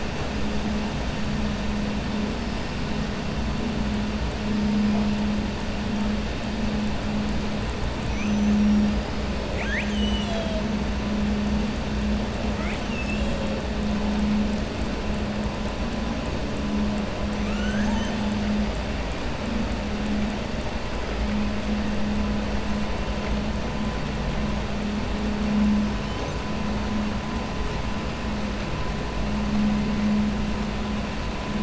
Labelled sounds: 8.0	8.9	killer whale, southern resident, 4.9 to 6.3 kHz
9.4	10.6	killer whale, southern resident, 1.6 to 7.9 kHz
12.5	13.4	killer whale, southern resident, 1.3 to 8.0 kHz

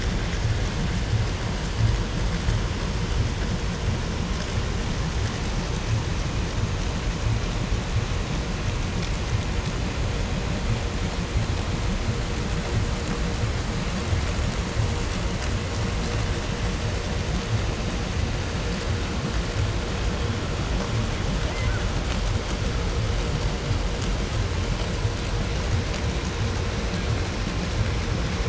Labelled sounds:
21.3	22.0	killer whale, Bigg's (transient), 0.55 to 2.5 kHz

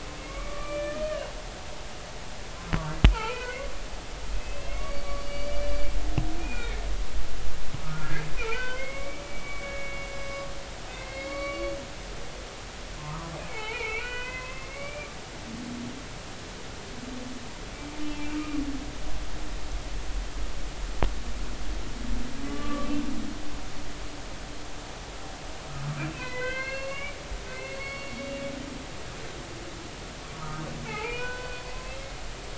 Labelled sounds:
0.2	1.0	humpback whale, 1.1 to 2.5 kHz
3.1	3.7	humpback whale, 0.83 to 2.6 kHz
4.3	5.9	humpback whale, 1.1 to 4.7 kHz
6.4	6.9	humpback whale, 1.7 to 2.5 kHz
7.9	10.2	humpback whale, 0.83 to 3.1 kHz
10.9	11.7	humpback whale, 1.1 to 4.5 kHz
13.0	15.1	humpback whale, 0.80 to 3.1 kHz
18.3	18.6	humpback whale, 1.1 to 1.3 kHz
22.5	22.9	humpback whale, 1.1 to 1.2 kHz
26.0	28.2	humpback whale, 0.96 to 4.5 kHz
30.4	31.6	humpback whale, 0.80 to 2.7 kHz

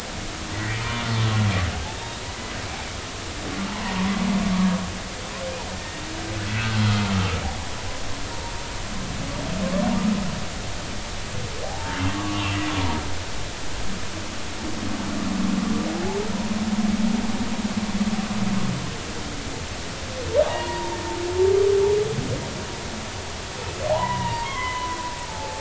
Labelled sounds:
3.7	4.1	humpback whale, 0.83 to 1.2 kHz
5.7	6.0	humpback whale, 1.8 to 1.9 kHz
11.6	12.6	humpback whale, 0.80 to 2.9 kHz
20.5	21.0	humpback whale, 0.80 to 1.0 kHz
23.9	25.6	humpback whale, 0.80 to 3.1 kHz

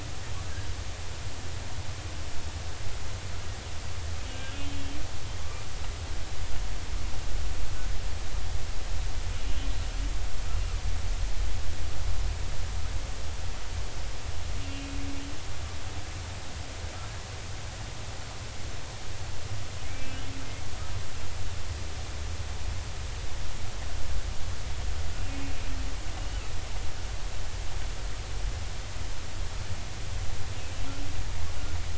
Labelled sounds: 4.3	5.6	humpback whale, 1.1 to 3.2 kHz
14.7	14.9	humpback whale, 2.4 to 2.5 kHz
19.8	20.2	humpback whale, 2.1 to 2.4 kHz
26.2	26.4	humpback whale, 2.8 to 3.0 kHz

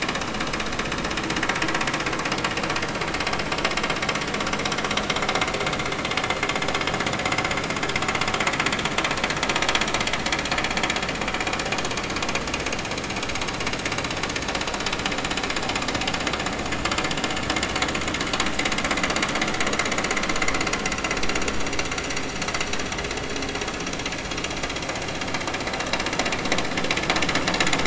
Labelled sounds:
25.7	26.0	vessel noise, 3.6 to 4.0 kHz

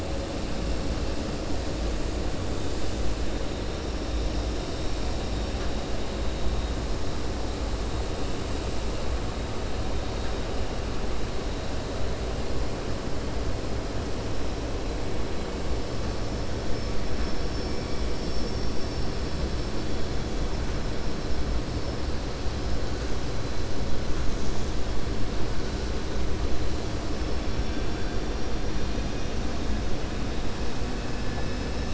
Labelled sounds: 18.1	19.1	vessel noise, 4.2 to 6.1 kHz

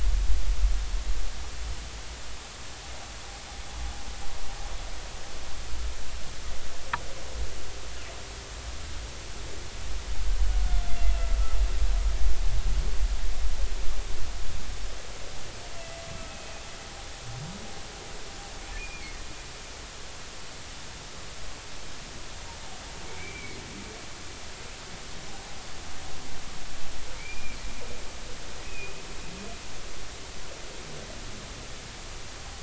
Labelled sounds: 16.3	16.6	humpback whale, 2.4 to 2.6 kHz
18.8	19.2	humpback whale, 2.1 to 2.5 kHz
23.2	23.6	humpback whale, 2.0 to 2.4 kHz
27.2	27.6	humpback whale, 2.1 to 2.5 kHz
28.6	29.0	humpback whale, 2.4 to 2.6 kHz

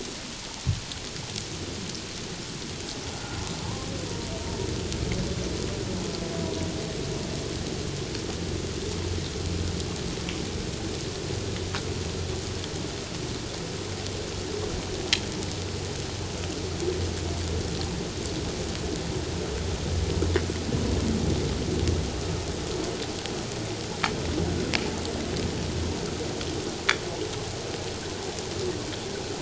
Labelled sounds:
3.1	3.4	humpback whale, 1.3 to 1.5 kHz

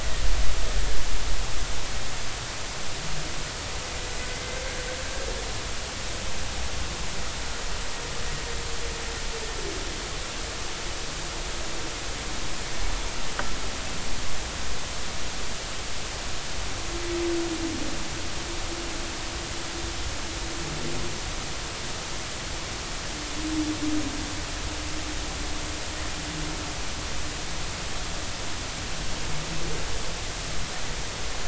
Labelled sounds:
4.3	4.6	humpback whale, 2.0 to 2.1 kHz

